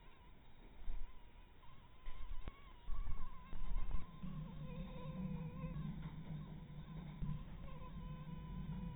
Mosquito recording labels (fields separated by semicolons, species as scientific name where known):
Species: mosquito; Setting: cup